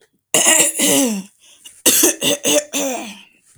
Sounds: Throat clearing